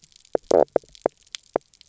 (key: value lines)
label: biophony, knock croak
recorder: SoundTrap 300